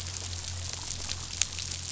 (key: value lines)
label: anthrophony, boat engine
recorder: SoundTrap 500